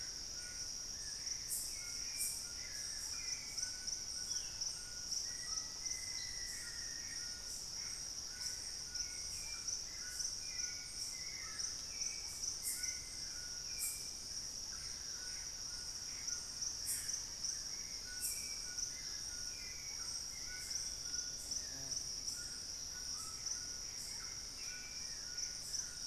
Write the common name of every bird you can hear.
Gray Antbird, Hauxwell's Thrush, White-throated Toucan, unidentified bird, Black-faced Antthrush